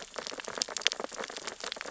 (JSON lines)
{"label": "biophony, sea urchins (Echinidae)", "recorder": "SoundTrap 600 or HydroMoth"}